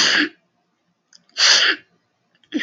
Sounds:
Sniff